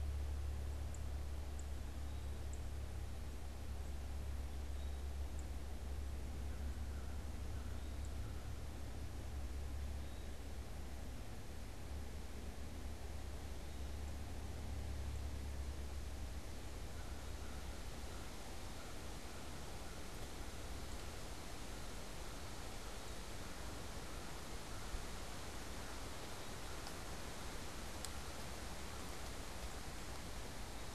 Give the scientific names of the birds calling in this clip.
unidentified bird, Contopus virens